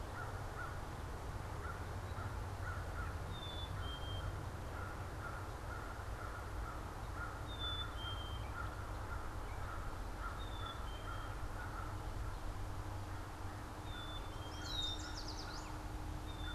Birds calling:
American Crow (Corvus brachyrhynchos), Black-capped Chickadee (Poecile atricapillus), Yellow Warbler (Setophaga petechia)

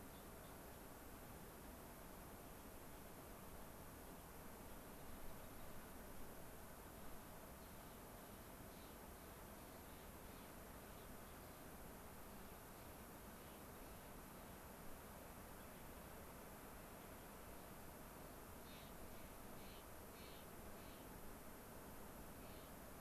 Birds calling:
Clark's Nutcracker (Nucifraga columbiana), Gray-crowned Rosy-Finch (Leucosticte tephrocotis)

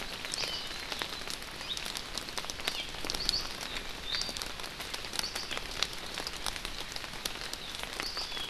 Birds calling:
Iiwi (Drepanis coccinea)

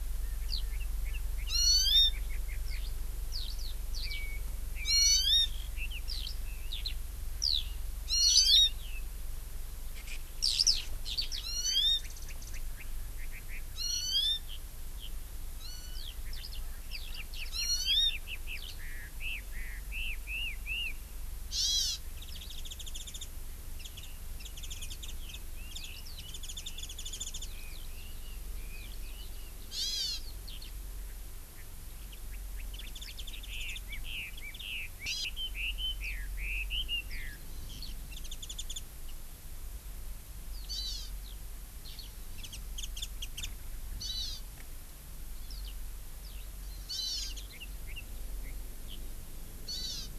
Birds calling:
Warbling White-eye (Zosterops japonicus), Red-billed Leiothrix (Leiothrix lutea), Eurasian Skylark (Alauda arvensis), Erckel's Francolin (Pternistis erckelii), Hawaii Amakihi (Chlorodrepanis virens)

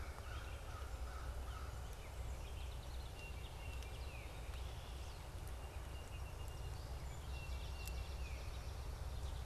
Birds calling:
Song Sparrow (Melospiza melodia), Baltimore Oriole (Icterus galbula), Gray Catbird (Dumetella carolinensis), Swamp Sparrow (Melospiza georgiana), American Crow (Corvus brachyrhynchos)

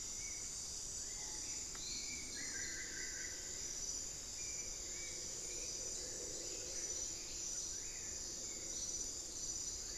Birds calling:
White-rumped Sirystes (Sirystes albocinereus), Spot-winged Antshrike (Pygiptila stellaris), Screaming Piha (Lipaugus vociferans), Hauxwell's Thrush (Turdus hauxwelli), Buff-throated Woodcreeper (Xiphorhynchus guttatus)

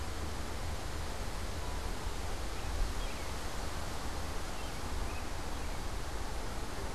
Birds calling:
American Robin (Turdus migratorius)

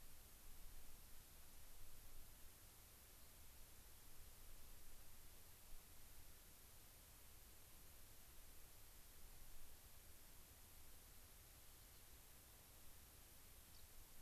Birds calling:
Gray-crowned Rosy-Finch (Leucosticte tephrocotis)

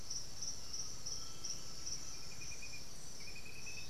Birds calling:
Piratic Flycatcher (Legatus leucophaius), Undulated Tinamou (Crypturellus undulatus)

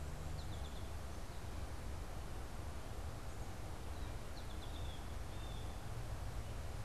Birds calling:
American Goldfinch (Spinus tristis), Blue Jay (Cyanocitta cristata)

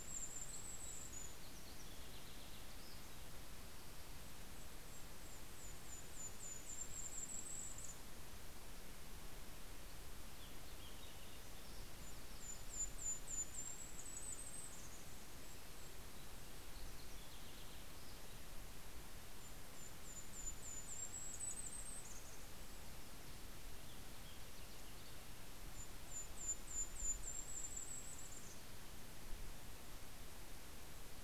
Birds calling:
Golden-crowned Kinglet (Regulus satrapa), Vesper Sparrow (Pooecetes gramineus)

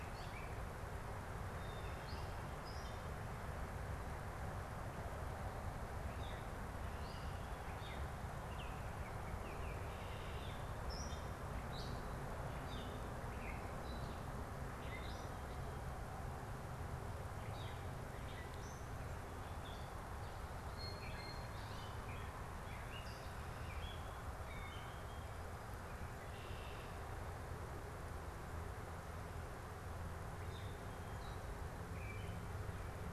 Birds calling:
Blue Jay (Cyanocitta cristata), Gray Catbird (Dumetella carolinensis), Red-winged Blackbird (Agelaius phoeniceus)

